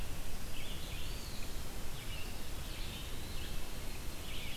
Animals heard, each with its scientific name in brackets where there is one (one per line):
Red-eyed Vireo (Vireo olivaceus)
Eastern Wood-Pewee (Contopus virens)